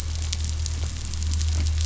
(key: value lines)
label: anthrophony, boat engine
recorder: SoundTrap 500